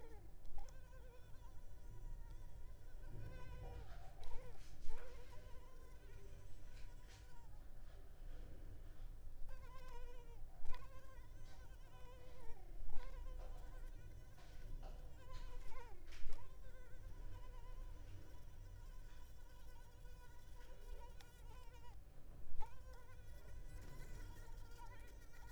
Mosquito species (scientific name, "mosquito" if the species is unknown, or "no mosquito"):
Culex pipiens complex